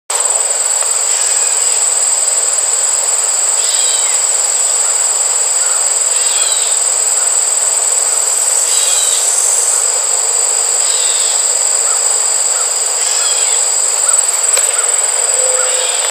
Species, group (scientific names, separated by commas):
Neotibicen canicularis, Cicadidae